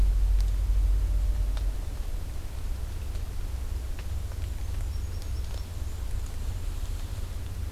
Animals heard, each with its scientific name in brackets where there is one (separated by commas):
Black-and-white Warbler (Mniotilta varia)